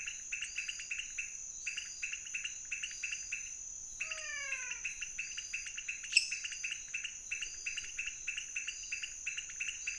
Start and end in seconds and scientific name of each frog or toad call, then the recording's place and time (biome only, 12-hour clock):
0.0	9.9	Leptodactylus podicipinus
3.9	5.0	Physalaemus albonotatus
6.0	6.5	Dendropsophus minutus
Cerrado, 2:30am